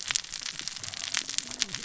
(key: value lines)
label: biophony, cascading saw
recorder: SoundTrap 600 or HydroMoth